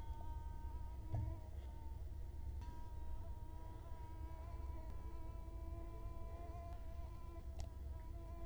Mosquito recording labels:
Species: Culex quinquefasciatus; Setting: cup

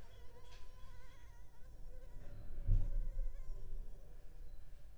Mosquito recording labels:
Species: Culex pipiens complex; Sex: female; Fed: unfed; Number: one; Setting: cup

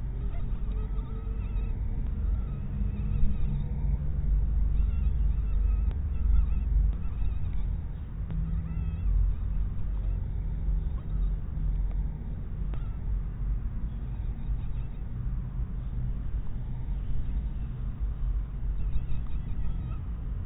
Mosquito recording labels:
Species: mosquito; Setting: cup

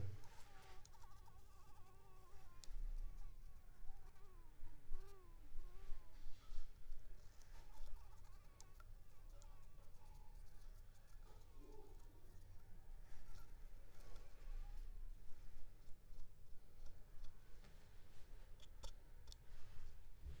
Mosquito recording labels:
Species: Anopheles squamosus; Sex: female; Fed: unfed; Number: one; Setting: cup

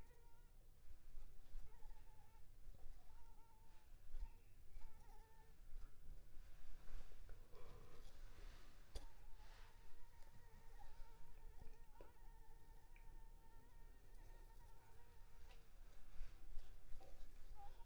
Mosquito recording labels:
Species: Anopheles arabiensis; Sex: female; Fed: unfed; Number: one; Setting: cup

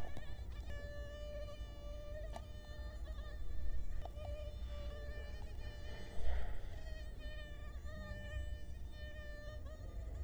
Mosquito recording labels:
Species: Culex quinquefasciatus; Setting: cup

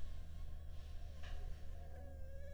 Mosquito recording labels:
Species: Anopheles arabiensis; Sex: female; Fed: unfed; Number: one; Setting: cup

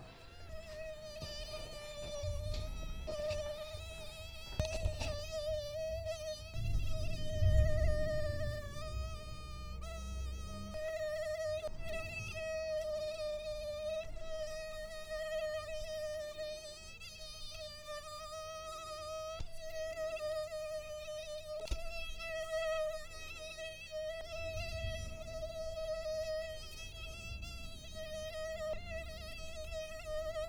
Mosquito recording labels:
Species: Toxorhynchites brevipalpis; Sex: female; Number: one; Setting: cup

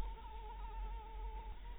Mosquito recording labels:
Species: Anopheles maculatus; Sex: female; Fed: blood-fed; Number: one; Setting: cup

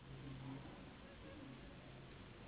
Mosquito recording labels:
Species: Anopheles gambiae s.s.; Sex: female; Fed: unfed; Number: one; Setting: insect culture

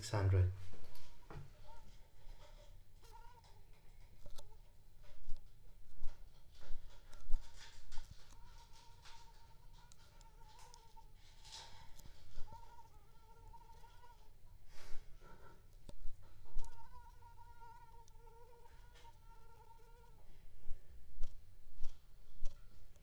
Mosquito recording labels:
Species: Anopheles squamosus; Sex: female; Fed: unfed; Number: one; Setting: cup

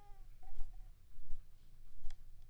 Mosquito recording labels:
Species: Anopheles coustani; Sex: female; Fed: unfed; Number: one; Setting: cup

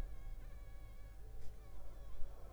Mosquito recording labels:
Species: Anopheles funestus s.l.; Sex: female; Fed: unfed; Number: one; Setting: cup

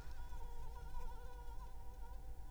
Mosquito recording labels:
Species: Anopheles arabiensis; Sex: female; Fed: unfed; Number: one; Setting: cup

